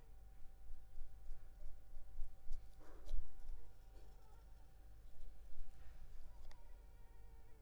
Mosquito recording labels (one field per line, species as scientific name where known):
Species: Culex pipiens complex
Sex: female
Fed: unfed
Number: one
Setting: cup